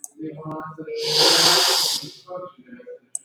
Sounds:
Sniff